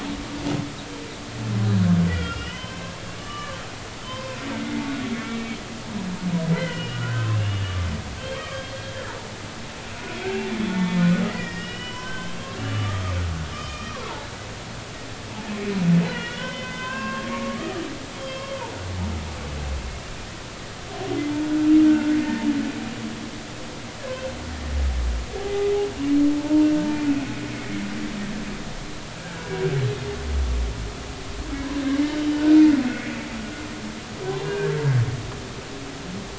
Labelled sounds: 2.1	2.9	humpback whale, 0.96 to 3.4 kHz
3.2	4.4	humpback whale, 0.90 to 3.0 kHz
5.1	5.6	humpback whale, 2.2 to 2.3 kHz
6.5	7.6	humpback whale, 0.99 to 3.2 kHz
8.2	8.6	humpback whale, 1.1 to 3.3 kHz
10.0	13.2	humpback whale, 0.93 to 5.6 kHz
13.5	14.1	humpback whale, 0.99 to 3.2 kHz
16.1	17.8	humpback whale, 0.96 to 3.5 kHz
18.2	18.5	humpback whale, 3.1 to 3.3 kHz
21.9	22.5	humpback whale, 1.4 to 1.9 kHz
25.4	26.7	humpback whale, 0.80 to 0.99 kHz
29.2	29.7	humpback whale, 1.4 to 1.7 kHz
31.9	32.6	humpback whale, 1.4 to 2.1 kHz
34.4	34.7	humpback whale, 1.5 to 1.7 kHz

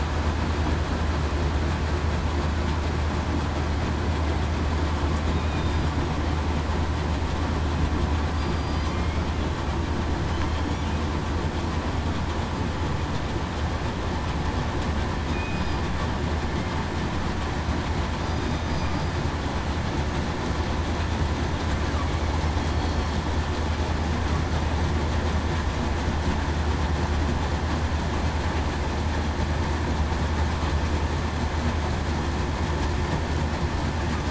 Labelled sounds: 8.5	8.9	killer whale, southern resident, 4.7 to 4.8 kHz
15.3	15.7	killer whale, southern resident, 2.4 to 2.5 kHz

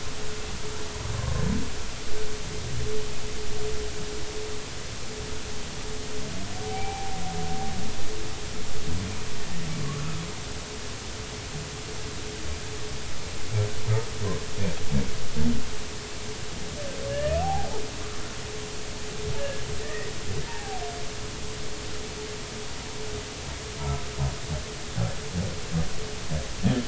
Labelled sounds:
6.6	7.2	humpback whale, 0.80 to 2.4 kHz
17.1	17.8	humpback whale, 0.80 to 1.9 kHz
19.4	20.8	humpback whale, 0.80 to 2.0 kHz
23.8	24.0	humpback whale, 1.2 to 1.4 kHz

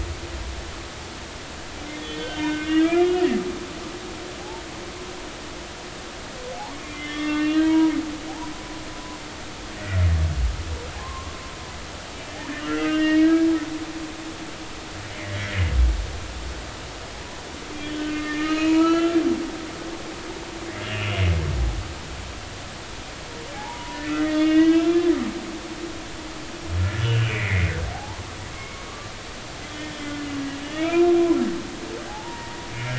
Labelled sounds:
1.9	3.1	humpback whale, 1.5 to 3.7 kHz
6.6	7.9	humpback whale, 0.80 to 3.7 kHz
9.8	10.0	humpback whale, 1.8 to 2.0 kHz
11.0	11.3	humpback whale, 0.99 to 1.2 kHz
12.7	13.3	humpback whale, 1.5 to 2.9 kHz
15.1	15.4	humpback whale, 1.9 to 2.5 kHz
17.8	19.2	humpback whale, 0.93 to 4.4 kHz
20.8	21.2	humpback whale, 2.3 to 3.0 kHz
23.5	25.1	humpback whale, 0.80 to 3.6 kHz
27.0	28.2	humpback whale, 0.80 to 3.1 kHz
28.5	29.1	humpback whale, 1.0 to 2.2 kHz
29.7	30.0	humpback whale, 1.7 to 1.9 kHz
30.6	31.1	humpback whale, 1.7 to 2.5 kHz
32.1	32.9	humpback whale, 0.80 to 2.3 kHz

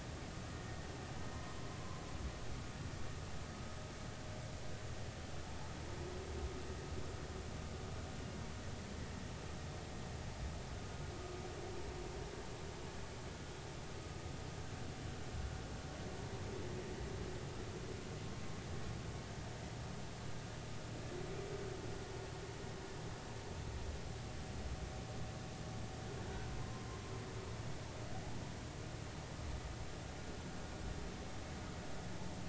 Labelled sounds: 27.5	28.0	humpback whale, 0.99 to 1.1 kHz

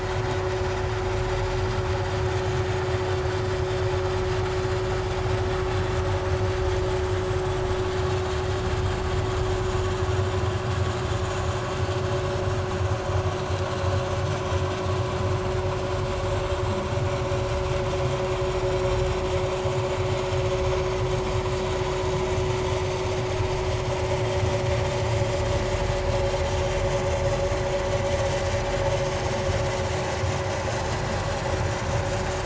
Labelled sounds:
4.5	4.8	vessel noise, 6.8 to 7.2 kHz
18.4	18.7	vessel noise, 5.4 to 5.7 kHz

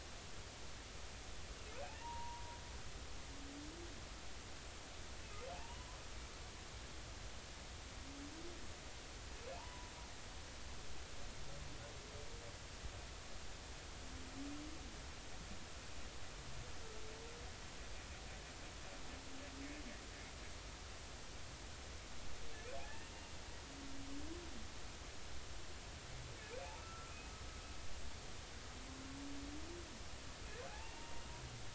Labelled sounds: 2.0	2.5	humpback whale, 0.86 to 1.1 kHz
5.5	5.9	humpback whale, 0.80 to 1.1 kHz
9.5	9.9	humpback whale, 0.80 to 1.1 kHz
22.8	23.1	humpback whale, 0.80 to 1.9 kHz
26.8	27.3	humpback whale, 1.2 to 2.6 kHz
30.7	31.2	humpback whale, 0.80 to 0.96 kHz

